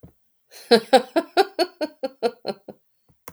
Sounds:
Laughter